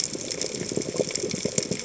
{"label": "biophony, chatter", "recorder": "HydroMoth"}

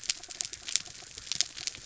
{"label": "anthrophony, mechanical", "recorder": "SoundTrap 300"}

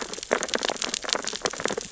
{"label": "biophony, sea urchins (Echinidae)", "recorder": "SoundTrap 600 or HydroMoth"}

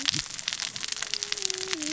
{"label": "biophony, cascading saw", "recorder": "SoundTrap 600 or HydroMoth"}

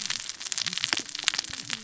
{"label": "biophony, cascading saw", "recorder": "SoundTrap 600 or HydroMoth"}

